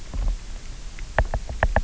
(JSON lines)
{"label": "biophony, knock", "recorder": "SoundTrap 300"}